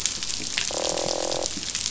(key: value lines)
label: biophony, croak
recorder: SoundTrap 500